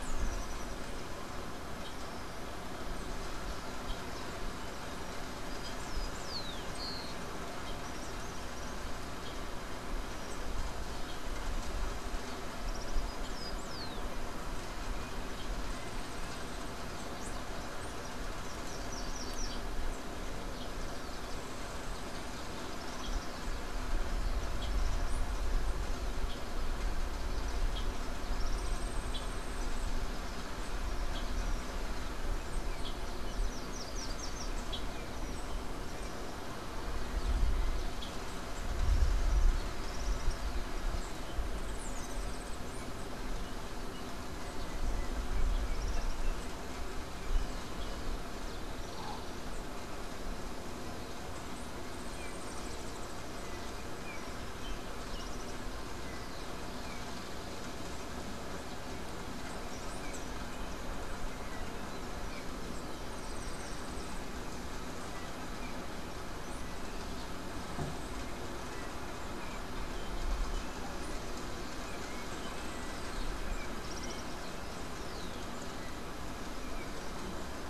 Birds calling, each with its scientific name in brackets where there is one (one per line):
Rufous-collared Sparrow (Zonotrichia capensis)
Yellow-faced Grassquit (Tiaris olivaceus)
Yellow-backed Oriole (Icterus chrysater)
Common Tody-Flycatcher (Todirostrum cinereum)
unidentified bird
Slate-throated Redstart (Myioborus miniatus)